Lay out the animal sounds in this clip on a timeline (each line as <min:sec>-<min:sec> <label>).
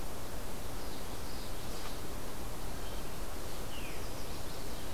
0:00.0-0:01.9 Common Yellowthroat (Geothlypis trichas)
0:03.6-0:04.9 Chestnut-sided Warbler (Setophaga pensylvanica)
0:03.7-0:04.0 Veery (Catharus fuscescens)